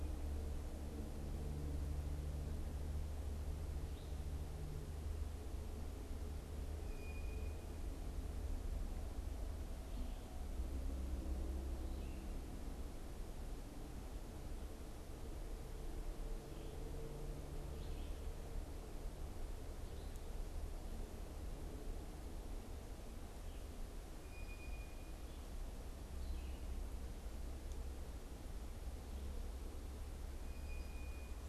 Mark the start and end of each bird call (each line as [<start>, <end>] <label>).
[6.60, 7.70] Blue Jay (Cyanocitta cristata)
[24.00, 31.40] Blue Jay (Cyanocitta cristata)